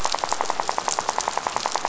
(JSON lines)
{"label": "biophony, rattle", "recorder": "SoundTrap 500"}